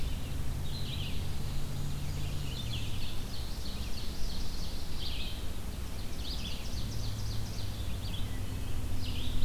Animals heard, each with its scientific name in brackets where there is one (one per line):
Hermit Thrush (Catharus guttatus)
Red-eyed Vireo (Vireo olivaceus)
Black-and-white Warbler (Mniotilta varia)
Ovenbird (Seiurus aurocapilla)